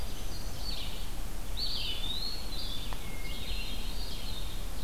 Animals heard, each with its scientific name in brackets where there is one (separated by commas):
Eastern Wood-Pewee (Contopus virens), Blue-headed Vireo (Vireo solitarius), Hermit Thrush (Catharus guttatus), Red-eyed Vireo (Vireo olivaceus)